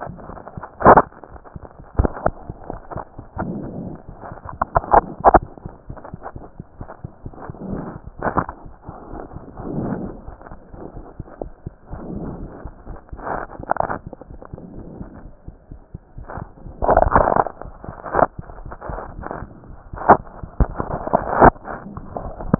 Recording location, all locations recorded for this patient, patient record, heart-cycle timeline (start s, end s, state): mitral valve (MV)
aortic valve (AV)+pulmonary valve (PV)+tricuspid valve (TV)+mitral valve (MV)
#Age: Child
#Sex: Male
#Height: 138.0 cm
#Weight: 31.3 kg
#Pregnancy status: False
#Murmur: Absent
#Murmur locations: nan
#Most audible location: nan
#Systolic murmur timing: nan
#Systolic murmur shape: nan
#Systolic murmur grading: nan
#Systolic murmur pitch: nan
#Systolic murmur quality: nan
#Diastolic murmur timing: nan
#Diastolic murmur shape: nan
#Diastolic murmur grading: nan
#Diastolic murmur pitch: nan
#Diastolic murmur quality: nan
#Outcome: Normal
#Campaign: 2015 screening campaign
0.00	10.93	unannotated
10.93	11.02	S1
11.02	11.16	systole
11.16	11.24	S2
11.24	11.42	diastole
11.42	11.49	S1
11.49	11.64	systole
11.64	11.72	S2
11.72	11.90	diastole
11.90	11.99	S1
11.99	12.14	systole
12.14	12.19	S2
12.19	12.41	diastole
12.41	12.47	S1
12.47	12.64	systole
12.64	12.70	S2
12.70	12.88	diastole
12.88	12.97	S1
12.97	13.10	systole
13.10	13.17	S2
13.17	14.26	unannotated
14.26	14.36	S1
14.36	14.51	systole
14.51	14.57	S2
14.57	14.76	diastole
14.76	14.84	S1
14.84	14.99	systole
14.99	15.06	S2
15.06	15.23	diastole
15.23	15.31	S1
15.31	15.47	systole
15.47	15.52	S2
15.52	15.70	diastole
15.70	15.78	S1
15.78	15.92	systole
15.92	15.99	S2
15.99	16.16	diastole
16.16	16.24	S1
16.24	16.40	systole
16.40	16.46	S2
16.46	16.63	diastole
16.63	16.73	S1
16.73	22.59	unannotated